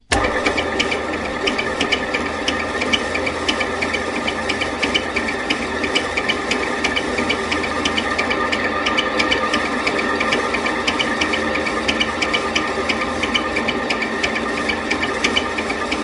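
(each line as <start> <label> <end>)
0.0 A constant buzzing sound of industrial equipment. 16.0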